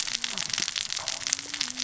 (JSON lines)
{"label": "biophony, cascading saw", "recorder": "SoundTrap 600 or HydroMoth"}